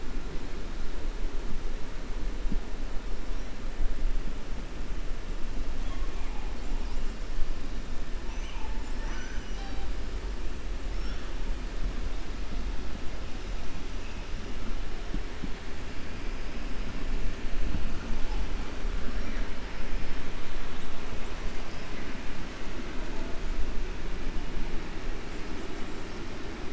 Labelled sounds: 8.7	9.9	killer whale, 0.75 to 7.8 kHz

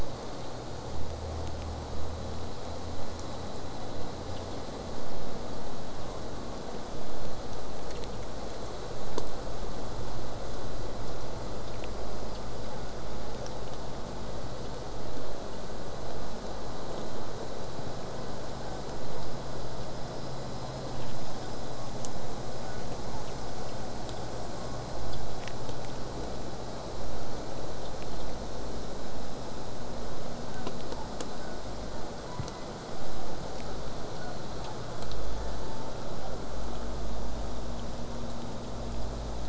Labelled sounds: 18.5	19.3	killer whale, southern resident, J pod, 0.39 to 1.8 kHz
22.6	23.3	killer whale, southern resident, J pod, 0.73 to 1.7 kHz
30.5	31.1	killer whale, southern resident, J pod, 0.70 to 1.7 kHz
31.4	32.7	killer whale, southern resident, J pod, 0.39 to 2.2 kHz
34.1	34.8	killer whale, southern resident, J pod, 0.58 to 1.5 kHz

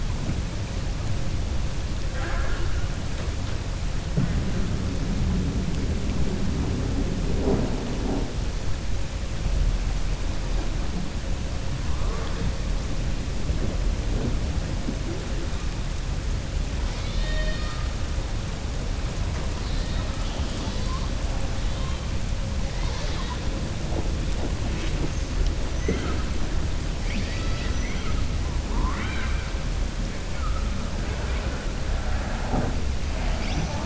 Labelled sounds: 27.0	28.2	killer whale, southern resident, 1.3 to 5.9 kHz

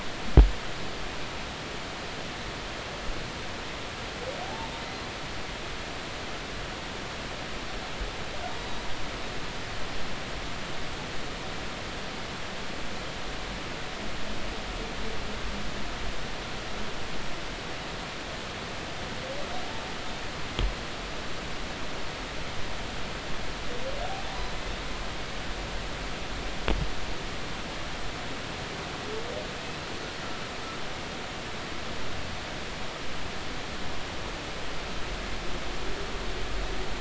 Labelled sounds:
4.4	4.7	humpback whale, 0.80 to 0.96 kHz
8.6	8.9	humpback whale, 3.8 to 4.0 kHz

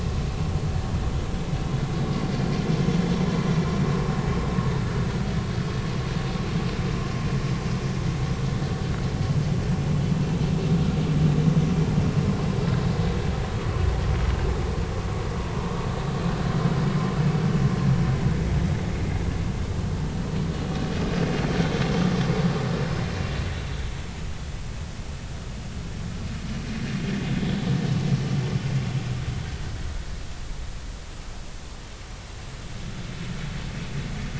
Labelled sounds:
15.6	15.9	vessel noise, 0.99 to 1.2 kHz

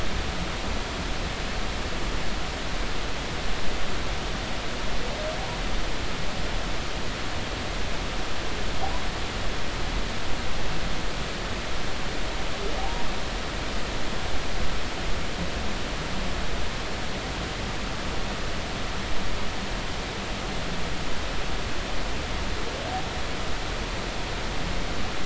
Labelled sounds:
12.8	13.1	humpback whale, 0.80 to 1.0 kHz

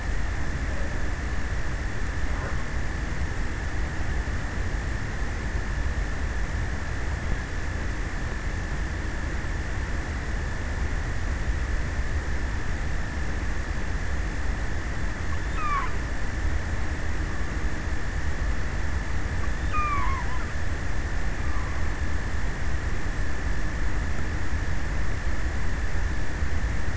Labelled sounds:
15.0	16.6	killer whale, offshore, 0.32 to 8.0 kHz
19.0	20.8	killer whale, offshore, 0.47 to 8.0 kHz

